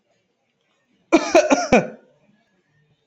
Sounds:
Cough